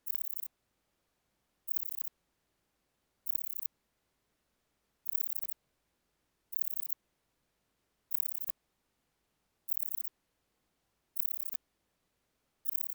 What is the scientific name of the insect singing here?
Pachytrachis gracilis